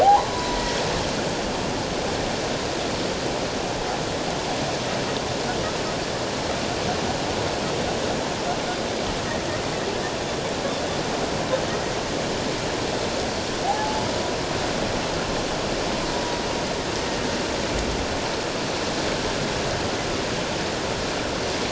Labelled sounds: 0.0	0.6	humpback whale, 0.78 to 1.1 kHz
13.6	14.0	humpback whale, 0.78 to 0.94 kHz

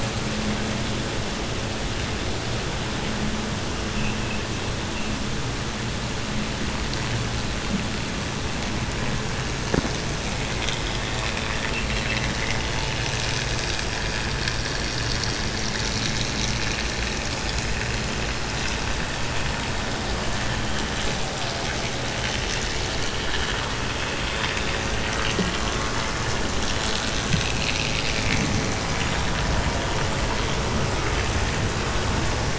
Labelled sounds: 11.1	12.6	vessel noise, 1.1 to 4.1 kHz

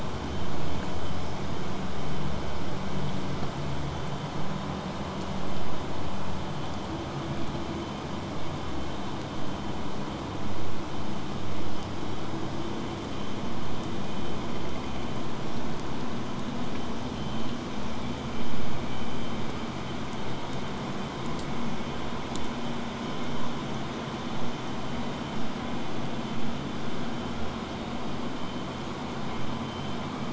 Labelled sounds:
22.3	27.3	vessel noise, 0 to 8.0 kHz

